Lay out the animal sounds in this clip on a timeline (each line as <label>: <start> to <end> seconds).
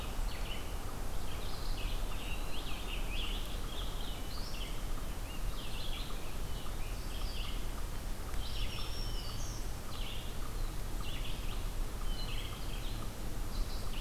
Red-eyed Vireo (Vireo olivaceus): 0.0 to 2.0 seconds
Eastern Wood-Pewee (Contopus virens): 1.1 to 2.7 seconds
Scarlet Tanager (Piranga olivacea): 1.9 to 4.3 seconds
Red-eyed Vireo (Vireo olivaceus): 4.2 to 14.0 seconds
Scarlet Tanager (Piranga olivacea): 5.1 to 7.7 seconds
Black-throated Green Warbler (Setophaga virens): 8.4 to 9.7 seconds